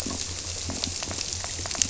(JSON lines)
{"label": "biophony", "recorder": "SoundTrap 300"}